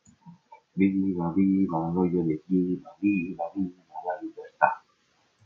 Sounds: Sigh